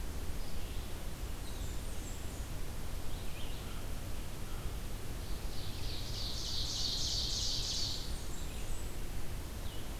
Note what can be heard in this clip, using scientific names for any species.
Vireo olivaceus, Setophaga fusca, Corvus brachyrhynchos, Seiurus aurocapilla